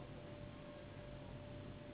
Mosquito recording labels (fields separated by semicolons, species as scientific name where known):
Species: Anopheles gambiae s.s.; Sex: female; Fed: unfed; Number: one; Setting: insect culture